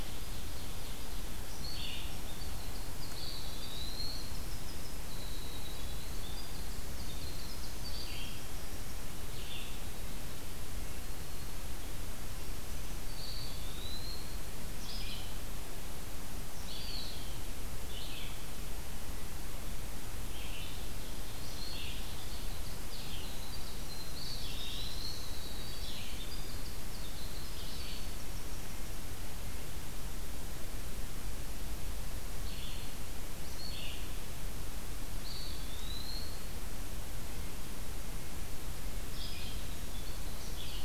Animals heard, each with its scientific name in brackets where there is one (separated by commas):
Ovenbird (Seiurus aurocapilla), Winter Wren (Troglodytes hiemalis), Red-eyed Vireo (Vireo olivaceus), Eastern Wood-Pewee (Contopus virens), Black-throated Green Warbler (Setophaga virens)